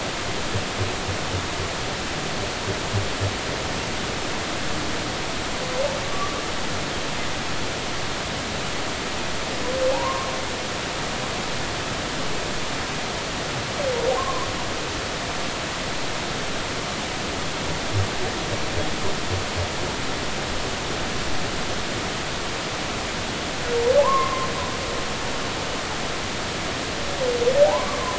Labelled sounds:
6.1	6.4	humpback whale, 1.1 to 1.3 kHz
9.9	10.3	humpback whale, 0.80 to 1.1 kHz
14.2	14.5	humpback whale, 0.96 to 1.2 kHz
24.0	24.5	humpback whale, 0.80 to 1.2 kHz
27.6	28.1	humpback whale, 0.80 to 1.2 kHz

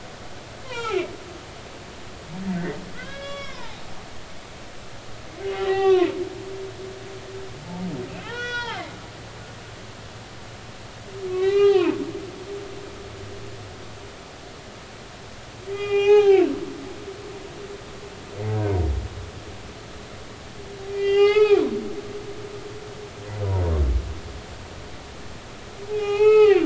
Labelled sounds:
0.6	1.1	humpback whale, 0.80 to 5.7 kHz
2.9	3.8	humpback whale, 0.80 to 5.1 kHz
5.5	6.1	humpback whale, 0.80 to 3.6 kHz
6.8	7.1	humpback whale, 0.99 to 3.2 kHz
8.2	9.0	humpback whale, 0.80 to 6.3 kHz
11.3	12.0	humpback whale, 0.83 to 4.1 kHz
15.7	16.5	humpback whale, 0.80 to 3.4 kHz
20.9	21.7	humpback whale, 0.80 to 5.2 kHz
25.9	26.6	humpback whale, 0.80 to 4.4 kHz

